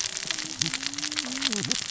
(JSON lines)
{"label": "biophony, cascading saw", "recorder": "SoundTrap 600 or HydroMoth"}